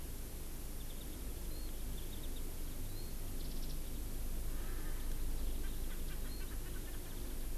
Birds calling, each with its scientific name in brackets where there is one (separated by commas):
Erckel's Francolin (Pternistis erckelii)